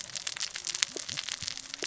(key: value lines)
label: biophony, cascading saw
recorder: SoundTrap 600 or HydroMoth